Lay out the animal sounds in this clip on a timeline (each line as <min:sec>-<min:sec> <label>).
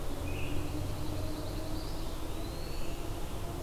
0:00.0-0:00.8 Scarlet Tanager (Piranga olivacea)
0:00.5-0:02.1 Pine Warbler (Setophaga pinus)
0:01.7-0:03.0 Eastern Wood-Pewee (Contopus virens)